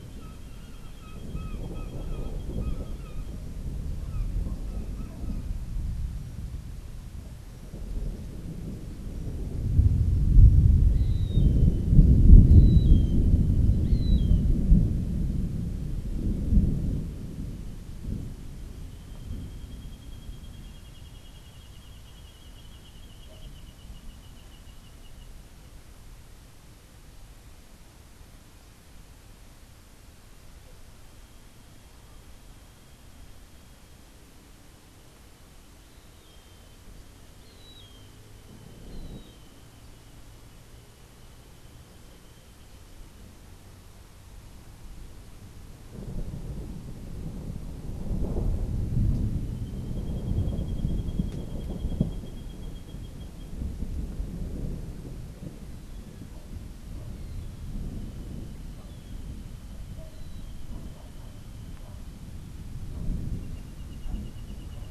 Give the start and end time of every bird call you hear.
[0.00, 5.30] Brown Jay (Psilorhinus morio)
[10.90, 14.50] Gray Hawk (Buteo plagiatus)
[37.40, 39.70] Gray Hawk (Buteo plagiatus)

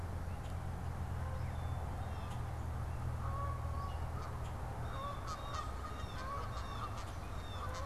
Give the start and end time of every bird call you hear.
[4.59, 7.85] Canada Goose (Branta canadensis)
[4.69, 7.85] Blue Jay (Cyanocitta cristata)

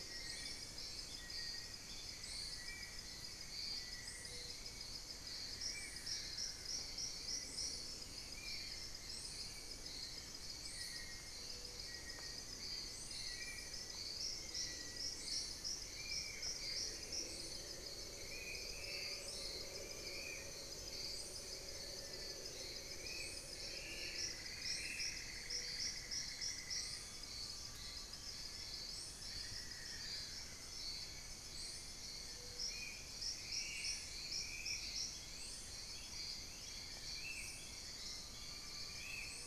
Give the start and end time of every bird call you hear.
[0.00, 15.27] Little Tinamou (Crypturellus soui)
[2.47, 25.87] Spot-winged Antshrike (Pygiptila stellaris)
[5.07, 7.07] Amazonian Barred-Woodcreeper (Dendrocolaptes certhia)
[6.17, 10.37] unidentified bird
[11.47, 13.87] Amazonian Pygmy-Owl (Glaucidium hardyi)
[15.87, 17.77] Buff-breasted Wren (Cantorchilus leucotis)
[18.57, 20.57] Amazonian Pygmy-Owl (Glaucidium hardyi)
[21.57, 24.57] Long-billed Woodcreeper (Nasica longirostris)
[23.87, 27.27] Cinnamon-throated Woodcreeper (Dendrexetastes rufigula)
[26.57, 28.77] Amazonian Pygmy-Owl (Glaucidium hardyi)
[28.87, 30.67] Amazonian Barred-Woodcreeper (Dendrocolaptes certhia)
[32.47, 39.47] Spot-winged Antshrike (Pygiptila stellaris)
[34.97, 36.97] Gray Antwren (Myrmotherula menetriesii)
[37.77, 39.47] Amazonian Pygmy-Owl (Glaucidium hardyi)

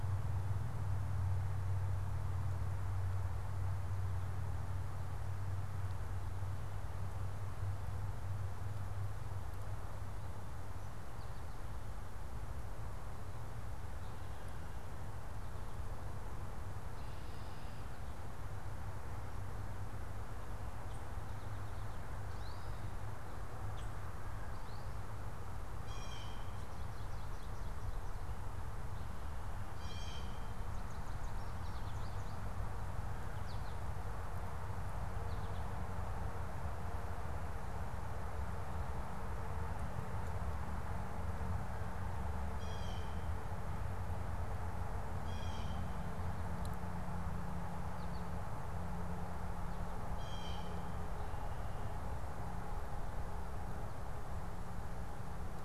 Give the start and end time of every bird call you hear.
[22.05, 25.45] American Goldfinch (Spinus tristis)
[23.65, 23.95] unidentified bird
[25.85, 30.45] Blue Jay (Cyanocitta cristata)
[33.25, 35.85] American Goldfinch (Spinus tristis)
[42.35, 46.05] Blue Jay (Cyanocitta cristata)
[50.15, 50.95] Blue Jay (Cyanocitta cristata)

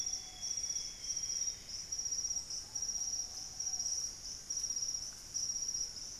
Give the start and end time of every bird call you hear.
[0.00, 2.00] Amazonian Grosbeak (Cyanoloxia rothschildii)
[0.00, 2.50] Plumbeous Antbird (Myrmelastes hyperythrus)
[0.00, 6.19] Ruddy Pigeon (Patagioenas subvinacea)
[2.40, 6.19] Fasciated Antshrike (Cymbilaimus lineatus)

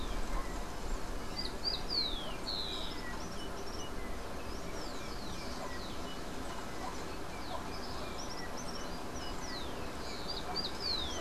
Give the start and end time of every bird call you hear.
[0.00, 11.21] Rufous-collared Sparrow (Zonotrichia capensis)
[0.00, 11.21] Yellow-backed Oriole (Icterus chrysater)

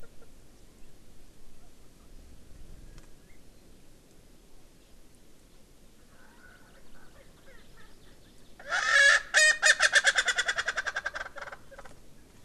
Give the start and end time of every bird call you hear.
[6.10, 11.60] Erckel's Francolin (Pternistis erckelii)

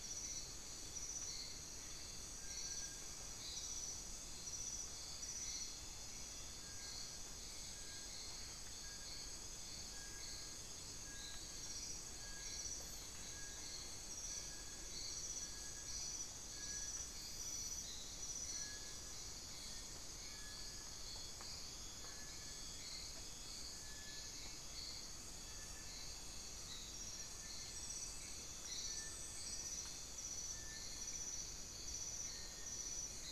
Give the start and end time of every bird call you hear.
[0.00, 33.32] Little Tinamou (Crypturellus soui)

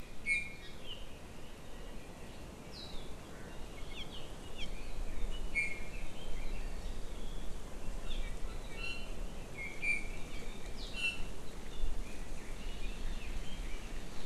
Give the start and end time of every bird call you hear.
[0.20, 0.70] Iiwi (Drepanis coccinea)
[1.60, 2.40] Apapane (Himatione sanguinea)
[5.50, 6.00] Iiwi (Drepanis coccinea)
[8.80, 9.20] Iiwi (Drepanis coccinea)
[9.60, 10.40] Iiwi (Drepanis coccinea)
[10.90, 11.30] Iiwi (Drepanis coccinea)
[12.00, 13.90] Red-billed Leiothrix (Leiothrix lutea)

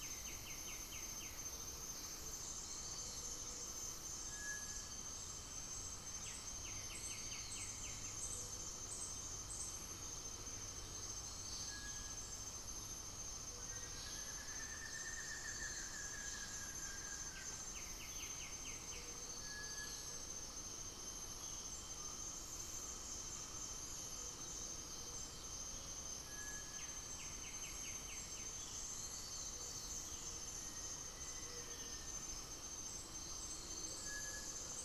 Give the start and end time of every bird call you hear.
[0.00, 8.73] Cinereous Tinamou (Crypturellus cinereus)
[0.00, 34.85] Gray-fronted Dove (Leptotila rufaxilla)
[2.33, 3.43] unidentified bird
[6.13, 8.33] White-winged Becard (Pachyramphus polychopterus)
[11.23, 11.93] unidentified bird
[11.43, 34.85] Cinereous Tinamou (Crypturellus cinereus)
[12.93, 17.83] Buff-throated Woodcreeper (Xiphorhynchus guttatus)
[17.33, 19.23] White-winged Becard (Pachyramphus polychopterus)
[26.63, 28.73] White-winged Becard (Pachyramphus polychopterus)
[34.33, 34.85] Buff-throated Woodcreeper (Xiphorhynchus guttatus)

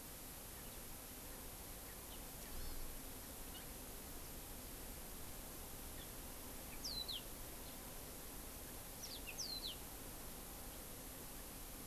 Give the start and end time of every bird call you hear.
[2.50, 2.90] Hawaii Amakihi (Chlorodrepanis virens)
[3.40, 3.71] House Finch (Haemorhous mexicanus)
[6.71, 7.30] Warbling White-eye (Zosterops japonicus)
[8.90, 9.80] Warbling White-eye (Zosterops japonicus)

